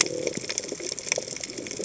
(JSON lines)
{"label": "biophony", "recorder": "HydroMoth"}